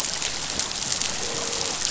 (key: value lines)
label: biophony, croak
recorder: SoundTrap 500